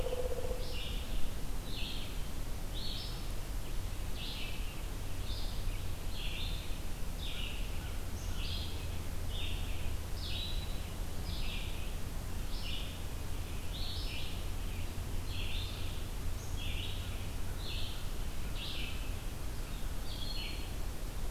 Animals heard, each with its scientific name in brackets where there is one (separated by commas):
American Crow (Corvus brachyrhynchos), Red-eyed Vireo (Vireo olivaceus), Pileated Woodpecker (Dryocopus pileatus)